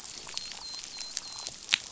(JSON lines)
{"label": "biophony, dolphin", "recorder": "SoundTrap 500"}